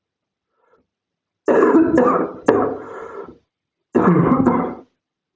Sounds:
Cough